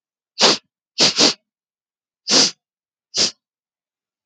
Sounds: Sniff